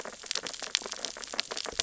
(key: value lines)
label: biophony, sea urchins (Echinidae)
recorder: SoundTrap 600 or HydroMoth